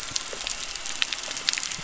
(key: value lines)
label: anthrophony, boat engine
recorder: SoundTrap 300